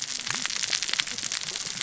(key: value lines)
label: biophony, cascading saw
recorder: SoundTrap 600 or HydroMoth